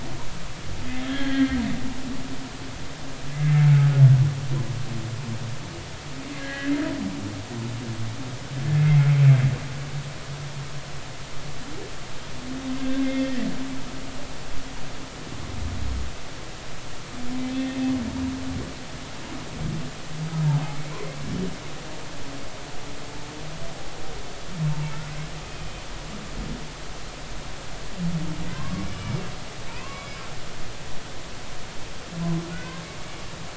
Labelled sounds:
1.0	1.6	humpback whale, 1.5 to 3.5 kHz
6.3	6.7	humpback whale, 1.6 to 2.1 kHz
8.7	9.1	humpback whale, 2.0 to 2.2 kHz
12.8	13.5	humpback whale, 1.5 to 3.5 kHz
25.6	25.9	humpback whale, 3.0 to 3.1 kHz
28.5	28.9	humpback whale, 0.99 to 1.2 kHz
29.7	30.2	humpback whale, 0.99 to 2.8 kHz
32.5	32.8	humpback whale, 1.4 to 2.1 kHz

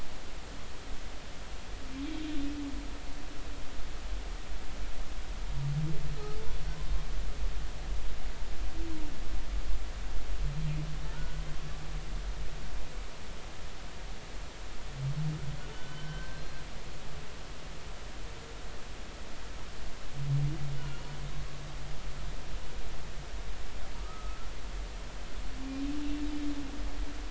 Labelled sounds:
6.1	6.4	humpback whale, 1.2 to 1.3 kHz
11.1	11.4	humpback whale, 1.3 to 1.5 kHz
15.7	16.6	humpback whale, 1.4 to 4.3 kHz
20.8	21.1	humpback whale, 2.8 to 3.0 kHz
24.0	24.4	humpback whale, 1.1 to 1.3 kHz

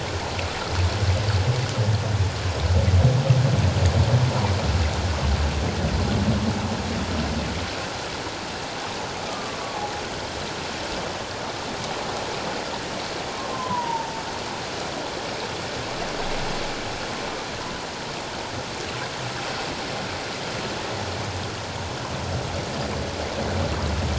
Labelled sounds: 9.3	9.8	humpback whale, 1.0 to 1.2 kHz
13.5	14.1	humpback whale, 0.84 to 1.1 kHz

